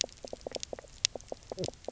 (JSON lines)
{"label": "biophony, knock croak", "recorder": "SoundTrap 300"}